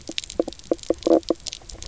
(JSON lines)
{"label": "biophony, knock croak", "recorder": "SoundTrap 300"}